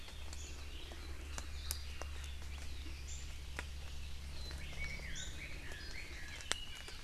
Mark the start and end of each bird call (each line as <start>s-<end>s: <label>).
4.5s-6.9s: Chinese Hwamei (Garrulax canorus)